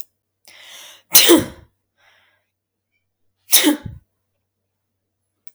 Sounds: Sneeze